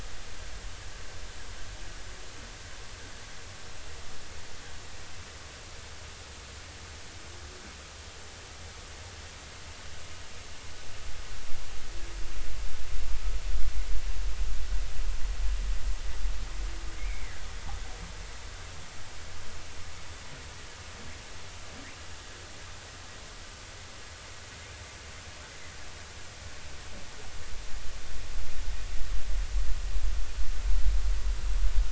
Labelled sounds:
17.0	17.4	humpback whale, 1.8 to 2.5 kHz

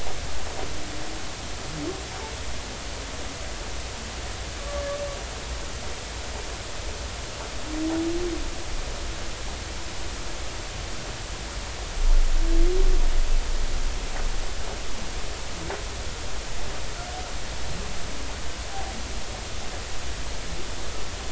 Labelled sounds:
4.6	4.9	humpback whale, 1.1 to 1.2 kHz

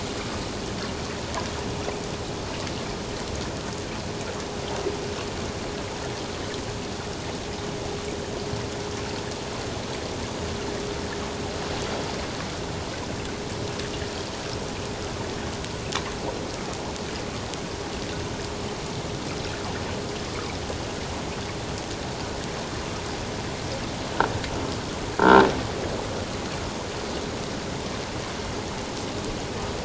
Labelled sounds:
25.2	25.4	croaking sound likely from a nearby submerged object, 1.3 to 1.6 kHz

